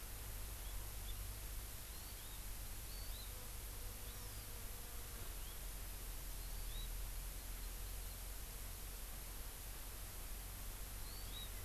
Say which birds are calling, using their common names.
Hawaii Amakihi, Warbling White-eye